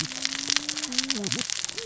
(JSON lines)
{"label": "biophony, cascading saw", "recorder": "SoundTrap 600 or HydroMoth"}